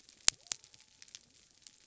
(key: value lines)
label: biophony
recorder: SoundTrap 300